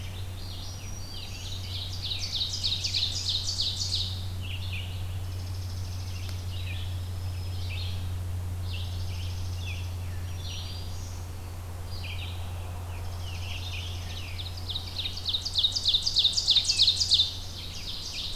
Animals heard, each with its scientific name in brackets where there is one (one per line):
Red-eyed Vireo (Vireo olivaceus)
Ovenbird (Seiurus aurocapilla)
Dark-eyed Junco (Junco hyemalis)
Black-throated Green Warbler (Setophaga virens)
Scarlet Tanager (Piranga olivacea)